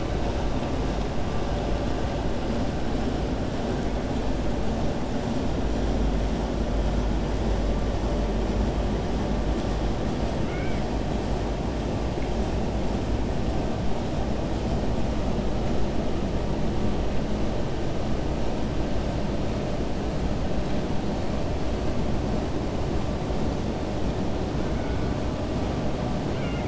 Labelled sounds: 10.4	10.9	killer whale, 1.4 to 3.2 kHz
26.3	26.6	killer whale, 1.4 to 3.2 kHz

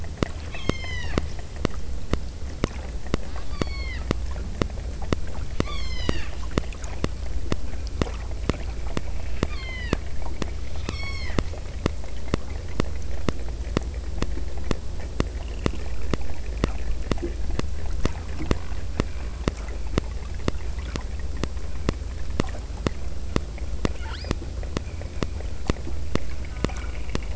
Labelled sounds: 0.5	1.3	killer whale, southern Alaska resident, 0.66 to 8.0 kHz
3.3	4.2	killer whale, southern Alaska resident, 0.75 to 5.7 kHz
5.6	6.4	killer whale, southern Alaska resident, 0.84 to 8.0 kHz
9.1	10.2	killer whale, southern Alaska resident, 0.68 to 5.4 kHz
10.8	11.5	killer whale, southern Alaska resident, 0.75 to 8.0 kHz
24.0	24.5	killer whale, southern Alaska resident, 0.68 to 5.1 kHz

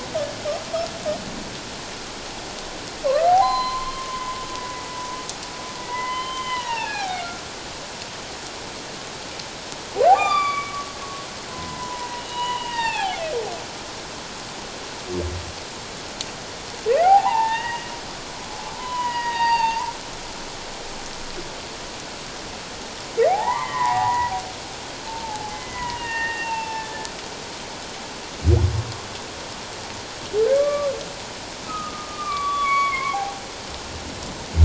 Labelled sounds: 3.2	4.3	humpback whale, 0.78 to 4.2 kHz
5.8	7.3	humpback whale, 0.78 to 3.2 kHz
10.1	10.9	humpback whale, 0.78 to 7.3 kHz
11.5	13.2	humpback whale, 0.78 to 4.8 kHz
16.9	17.9	humpback whale, 0.78 to 2.9 kHz
18.8	19.9	humpback whale, 0.84 to 6.9 kHz
23.3	24.3	humpback whale, 0.78 to 2.2 kHz
25.1	27.1	humpback whale, 0.78 to 2.9 kHz
30.5	30.9	humpback whale, 1.0 to 1.2 kHz
31.6	33.4	humpback whale, 0.78 to 4.5 kHz

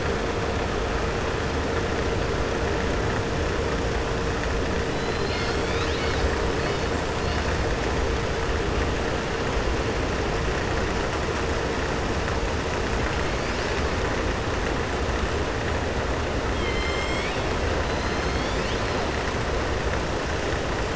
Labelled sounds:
16.5	17.4	killer whale, southern resident, 2.1 to 7.9 kHz

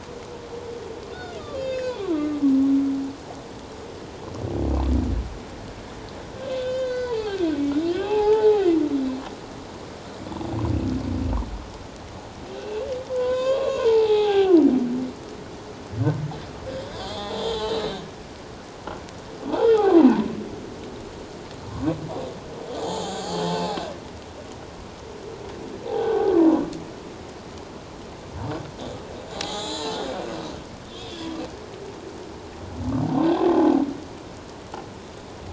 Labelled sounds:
1.1	2.4	humpback whale, 1.1 to 7.0 kHz
6.4	8.7	humpback whale, 0.78 to 6.8 kHz
12.6	14.6	humpback whale, 0.78 to 7.1 kHz
16.8	18.0	humpback whale, 0.78 to 4.1 kHz
19.5	20.3	humpback whale, 0.81 to 1.6 kHz
22.8	23.8	humpback whale, 0.78 to 4.6 kHz
25.9	26.4	humpback whale, 0.78 to 3.7 kHz
29.3	30.0	humpback whale, 0.78 to 7.3 kHz
30.9	31.4	humpback whale, 3.1 to 3.8 kHz
33.2	33.4	humpback whale, 1.5 to 1.7 kHz

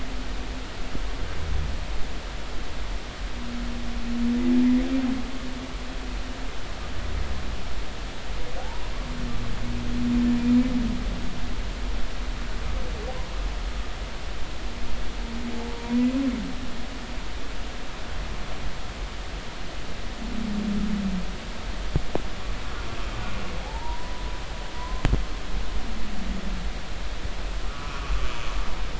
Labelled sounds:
23.6	25.0	humpback whale, 0.80 to 1.1 kHz
27.6	28.1	humpback whale, 0.96 to 1.5 kHz

